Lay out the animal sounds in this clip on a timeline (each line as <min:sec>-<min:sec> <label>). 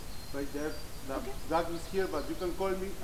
0:00.0-0:01.3 Hermit Thrush (Catharus guttatus)
0:01.0-0:02.7 Common Yellowthroat (Geothlypis trichas)